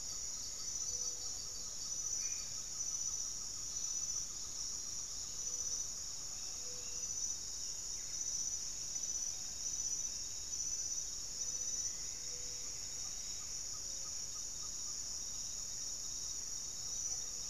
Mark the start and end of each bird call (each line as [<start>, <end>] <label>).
[0.00, 0.92] Goeldi's Antbird (Akletos goeldii)
[0.00, 7.32] Great Antshrike (Taraba major)
[0.00, 17.50] Gray-fronted Dove (Leptotila rufaxilla)
[1.92, 2.52] Black-faced Antthrush (Formicarius analis)
[6.02, 8.12] Hauxwell's Thrush (Turdus hauxwelli)
[7.52, 8.42] Buff-breasted Wren (Cantorchilus leucotis)
[10.72, 13.92] Plumbeous Antbird (Myrmelastes hyperythrus)
[12.42, 17.50] Great Antshrike (Taraba major)